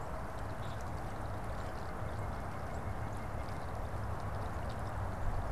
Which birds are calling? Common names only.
White-breasted Nuthatch